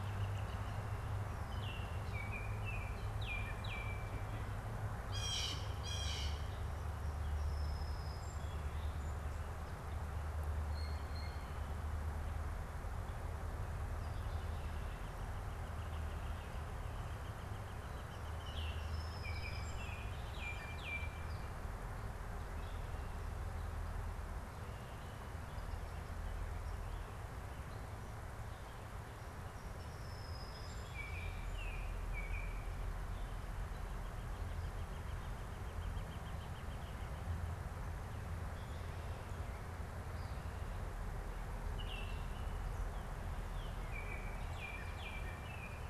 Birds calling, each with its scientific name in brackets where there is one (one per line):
Northern Flicker (Colaptes auratus)
Blue Jay (Cyanocitta cristata)
Baltimore Oriole (Icterus galbula)
Song Sparrow (Melospiza melodia)